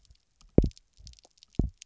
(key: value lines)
label: biophony, double pulse
recorder: SoundTrap 300